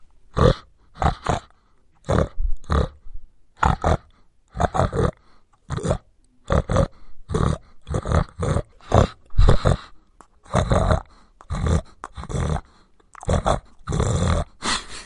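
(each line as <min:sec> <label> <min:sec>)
0:00.3 A pig oinks. 0:14.5
0:14.6 A pig snorts. 0:15.1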